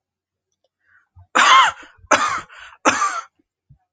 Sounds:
Cough